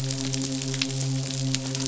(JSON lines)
{"label": "biophony, midshipman", "recorder": "SoundTrap 500"}